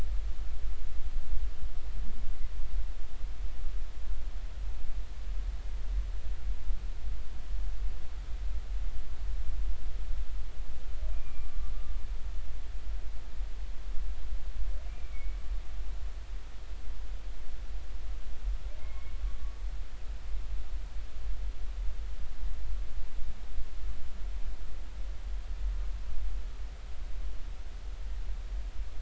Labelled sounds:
11.1	11.6	humpback whale, 1.2 to 2.5 kHz
14.9	15.4	humpback whale, 2.1 to 2.5 kHz
18.8	19.2	humpback whale, 2.1 to 2.3 kHz

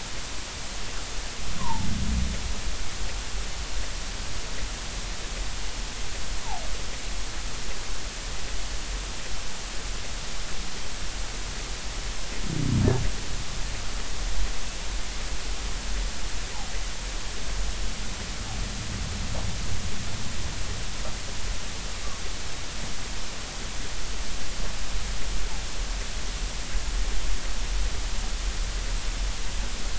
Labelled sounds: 1.6	1.9	humpback whale, 0.83 to 1.2 kHz

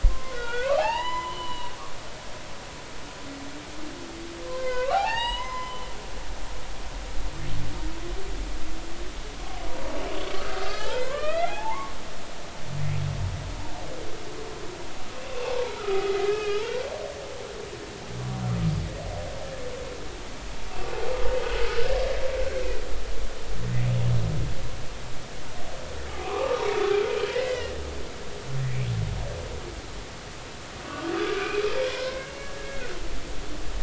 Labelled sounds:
0.1	1.7	humpback whale, 0.80 to 7.1 kHz
4.5	5.9	humpback whale, 0.80 to 7.9 kHz
10.3	12.0	humpback whale, 0.80 to 5.1 kHz
15.4	16.6	humpback whale, 0.80 to 2.6 kHz
26.1	27.7	humpback whale, 0.80 to 5.3 kHz
30.9	31.6	humpback whale, 1.1 to 2.6 kHz
31.9	32.9	humpback whale, 0.93 to 2.3 kHz

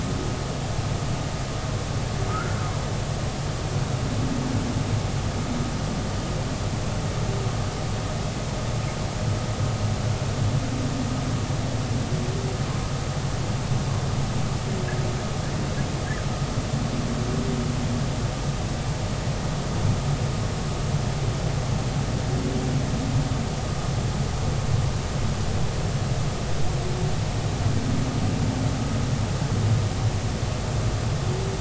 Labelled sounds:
2.3	2.6	humpback whale, 1.2 to 1.6 kHz

